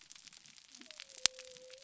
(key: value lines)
label: biophony
recorder: SoundTrap 300